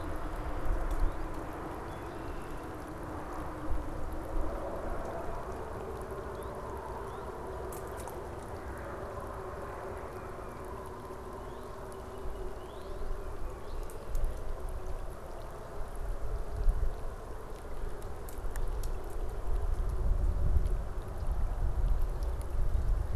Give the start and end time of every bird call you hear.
[1.60, 2.70] Red-winged Blackbird (Agelaius phoeniceus)
[6.10, 7.50] Northern Cardinal (Cardinalis cardinalis)
[9.90, 10.70] Tufted Titmouse (Baeolophus bicolor)
[11.30, 13.90] Northern Cardinal (Cardinalis cardinalis)

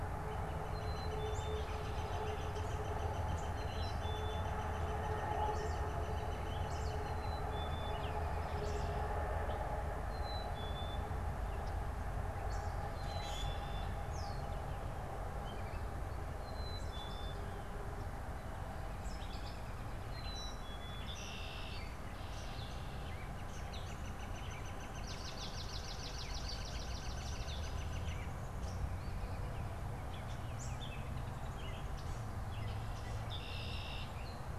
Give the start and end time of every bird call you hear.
[0.00, 7.50] Northern Flicker (Colaptes auratus)
[0.50, 1.80] Black-capped Chickadee (Poecile atricapillus)
[7.80, 34.58] Gray Catbird (Dumetella carolinensis)
[8.20, 9.30] Red-winged Blackbird (Agelaius phoeniceus)
[9.90, 11.40] Black-capped Chickadee (Poecile atricapillus)
[12.80, 13.70] Common Grackle (Quiscalus quiscula)
[12.80, 14.10] Red-winged Blackbird (Agelaius phoeniceus)
[12.80, 14.20] Black-capped Chickadee (Poecile atricapillus)
[16.30, 17.70] Black-capped Chickadee (Poecile atricapillus)
[20.00, 21.20] Black-capped Chickadee (Poecile atricapillus)
[20.70, 23.20] Red-winged Blackbird (Agelaius phoeniceus)
[23.00, 28.30] Northern Flicker (Colaptes auratus)
[24.90, 27.90] Swamp Sparrow (Melospiza georgiana)
[32.90, 34.40] Red-winged Blackbird (Agelaius phoeniceus)

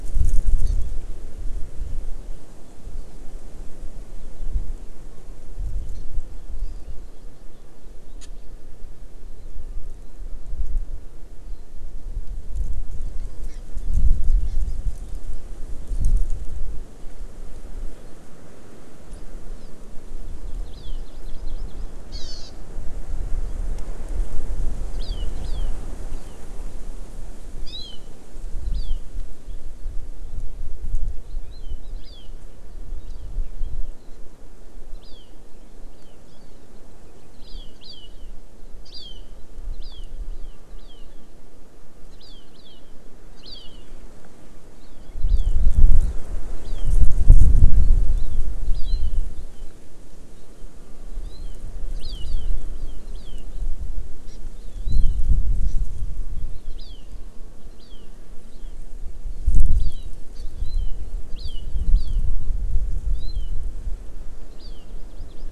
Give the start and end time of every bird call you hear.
[0.67, 0.77] Hawaii Amakihi (Chlorodrepanis virens)
[5.96, 6.07] Hawaii Amakihi (Chlorodrepanis virens)
[13.46, 13.56] Hawaii Amakihi (Chlorodrepanis virens)
[14.46, 14.56] Hawaii Amakihi (Chlorodrepanis virens)
[20.66, 22.46] Hawaii Amakihi (Chlorodrepanis virens)
[24.96, 25.66] Hawaii Amakihi (Chlorodrepanis virens)
[26.07, 26.36] Hawaii Amakihi (Chlorodrepanis virens)
[27.66, 27.96] Hawaii Amakihi (Chlorodrepanis virens)
[28.77, 28.96] Hawaii Amakihi (Chlorodrepanis virens)
[31.46, 32.27] Hawaii Amakihi (Chlorodrepanis virens)
[33.06, 33.27] Hawaii Amakihi (Chlorodrepanis virens)
[34.97, 35.27] Hawaii Amakihi (Chlorodrepanis virens)
[35.87, 36.16] Hawaii Amakihi (Chlorodrepanis virens)
[37.37, 38.16] Hawaii Amakihi (Chlorodrepanis virens)
[38.87, 39.16] Hawaii Amakihi (Chlorodrepanis virens)
[39.77, 41.06] Hawaii Amakihi (Chlorodrepanis virens)
[42.16, 42.97] Hawaii Amakihi (Chlorodrepanis virens)
[43.37, 43.87] Hawaii Amakihi (Chlorodrepanis virens)
[45.27, 45.56] Hawaii Amakihi (Chlorodrepanis virens)
[46.66, 46.97] Hawaii Amakihi (Chlorodrepanis virens)
[48.16, 48.37] Hawaii Amakihi (Chlorodrepanis virens)
[48.77, 48.97] Hawaii Amakihi (Chlorodrepanis virens)
[51.27, 51.56] Hawaii Amakihi (Chlorodrepanis virens)
[51.97, 52.47] Hawaii Amakihi (Chlorodrepanis virens)
[52.77, 53.47] Hawaii Amakihi (Chlorodrepanis virens)
[54.27, 54.37] Hawaii Amakihi (Chlorodrepanis virens)
[56.77, 57.06] Hawaii Amakihi (Chlorodrepanis virens)
[57.77, 58.06] Hawaii Amakihi (Chlorodrepanis virens)
[58.47, 58.77] Hawaii Amakihi (Chlorodrepanis virens)
[59.77, 60.97] Hawaii Amakihi (Chlorodrepanis virens)
[61.37, 62.16] Hawaii Amakihi (Chlorodrepanis virens)
[63.06, 63.56] Hawaii Amakihi (Chlorodrepanis virens)
[64.56, 65.47] Hawaii Amakihi (Chlorodrepanis virens)

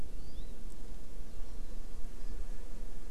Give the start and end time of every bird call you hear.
[0.07, 0.57] Hawaii Amakihi (Chlorodrepanis virens)

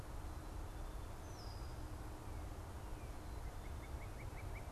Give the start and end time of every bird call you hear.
[1.13, 1.93] Red-winged Blackbird (Agelaius phoeniceus)
[3.33, 4.72] Northern Cardinal (Cardinalis cardinalis)

